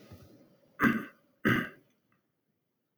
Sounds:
Throat clearing